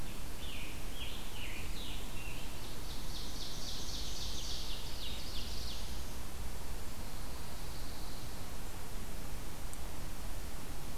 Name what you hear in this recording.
Scarlet Tanager, Ovenbird, Black-throated Blue Warbler, Pine Warbler